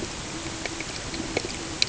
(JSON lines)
{"label": "ambient", "recorder": "HydroMoth"}